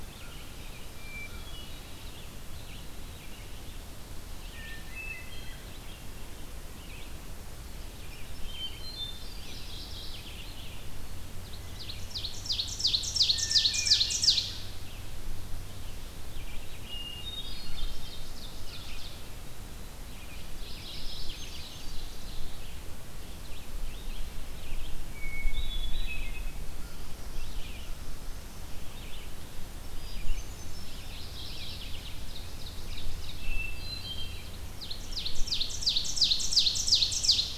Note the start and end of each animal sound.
[0.00, 33.30] Red-eyed Vireo (Vireo olivaceus)
[0.07, 1.44] American Crow (Corvus brachyrhynchos)
[0.92, 2.21] Hermit Thrush (Catharus guttatus)
[4.47, 5.82] Hermit Thrush (Catharus guttatus)
[8.40, 9.79] Hermit Thrush (Catharus guttatus)
[9.07, 10.57] Mourning Warbler (Geothlypis philadelphia)
[11.17, 15.04] Ovenbird (Seiurus aurocapilla)
[13.28, 14.55] Hermit Thrush (Catharus guttatus)
[16.70, 18.34] Hermit Thrush (Catharus guttatus)
[17.11, 19.57] Ovenbird (Seiurus aurocapilla)
[20.15, 22.65] Ovenbird (Seiurus aurocapilla)
[20.39, 21.71] Mourning Warbler (Geothlypis philadelphia)
[24.91, 26.88] Hermit Thrush (Catharus guttatus)
[29.78, 31.00] Hermit Thrush (Catharus guttatus)
[31.14, 33.43] Ovenbird (Seiurus aurocapilla)
[31.18, 32.27] Mourning Warbler (Geothlypis philadelphia)
[33.27, 34.62] Hermit Thrush (Catharus guttatus)
[34.53, 37.58] Ovenbird (Seiurus aurocapilla)

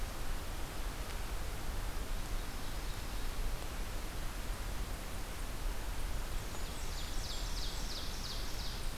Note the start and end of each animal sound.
[2.14, 3.42] Ovenbird (Seiurus aurocapilla)
[6.02, 8.10] Blackburnian Warbler (Setophaga fusca)
[6.27, 8.98] Ovenbird (Seiurus aurocapilla)

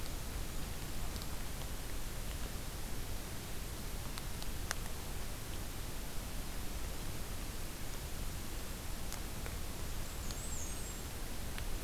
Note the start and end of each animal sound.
[0.00, 1.50] Golden-crowned Kinglet (Regulus satrapa)
[9.84, 11.06] Black-and-white Warbler (Mniotilta varia)

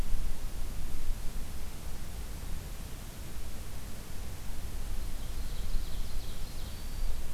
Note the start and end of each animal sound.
[5.09, 6.89] Ovenbird (Seiurus aurocapilla)
[6.63, 7.16] Black-throated Green Warbler (Setophaga virens)

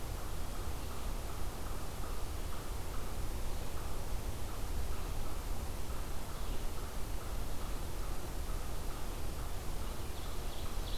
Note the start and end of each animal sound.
[0.00, 10.98] unknown mammal
[9.81, 10.98] Ovenbird (Seiurus aurocapilla)

